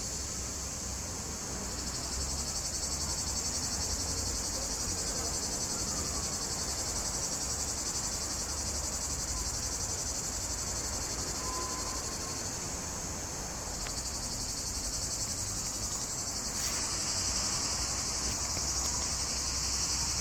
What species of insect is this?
Lyristes plebejus